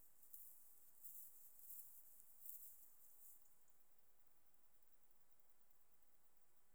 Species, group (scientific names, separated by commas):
Conocephalus fuscus, Orthoptera